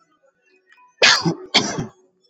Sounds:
Cough